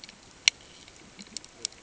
{"label": "ambient", "recorder": "HydroMoth"}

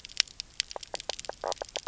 {"label": "biophony, knock croak", "recorder": "SoundTrap 300"}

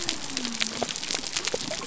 {"label": "biophony", "recorder": "SoundTrap 300"}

